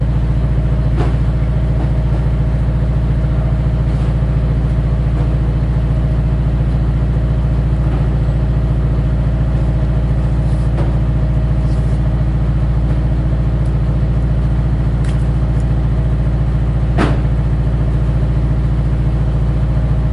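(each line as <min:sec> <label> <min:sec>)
0:00.0 A loud engine is running while heavy objects are periodically thrown. 0:20.1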